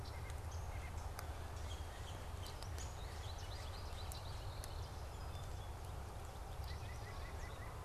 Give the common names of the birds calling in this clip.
White-breasted Nuthatch, Downy Woodpecker, Yellow-bellied Sapsucker, American Goldfinch